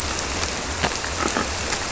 {"label": "biophony", "recorder": "SoundTrap 300"}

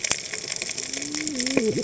{"label": "biophony, cascading saw", "recorder": "HydroMoth"}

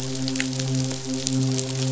{"label": "biophony, midshipman", "recorder": "SoundTrap 500"}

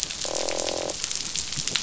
{"label": "biophony, croak", "recorder": "SoundTrap 500"}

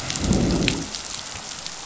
{"label": "biophony, growl", "recorder": "SoundTrap 500"}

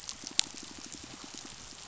{"label": "biophony, pulse", "recorder": "SoundTrap 500"}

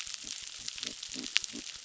{"label": "biophony", "recorder": "SoundTrap 600"}
{"label": "biophony, crackle", "recorder": "SoundTrap 600"}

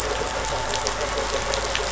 {"label": "anthrophony, boat engine", "recorder": "SoundTrap 500"}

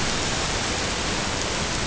{"label": "ambient", "recorder": "HydroMoth"}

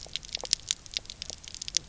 {"label": "biophony, knock croak", "recorder": "SoundTrap 300"}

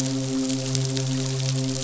{"label": "biophony, midshipman", "recorder": "SoundTrap 500"}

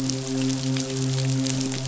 {"label": "biophony, midshipman", "recorder": "SoundTrap 500"}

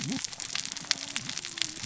{"label": "biophony, cascading saw", "recorder": "SoundTrap 600 or HydroMoth"}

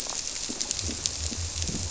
{"label": "biophony", "recorder": "SoundTrap 300"}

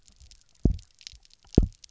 {"label": "biophony, double pulse", "recorder": "SoundTrap 300"}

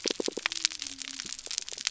{"label": "biophony", "recorder": "SoundTrap 300"}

